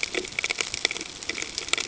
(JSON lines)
{"label": "ambient", "recorder": "HydroMoth"}